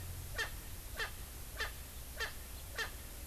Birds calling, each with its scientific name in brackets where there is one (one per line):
Erckel's Francolin (Pternistis erckelii)